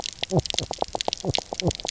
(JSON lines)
{"label": "biophony, knock croak", "recorder": "SoundTrap 300"}